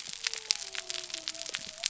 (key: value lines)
label: biophony
recorder: SoundTrap 300